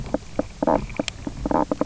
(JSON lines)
{"label": "biophony, knock croak", "recorder": "SoundTrap 300"}